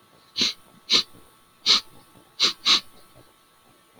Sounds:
Sniff